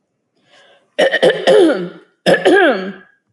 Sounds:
Throat clearing